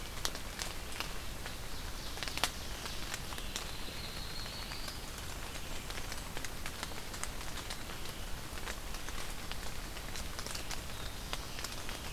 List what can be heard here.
Ovenbird, Yellow-rumped Warbler, Blackburnian Warbler, Black-throated Blue Warbler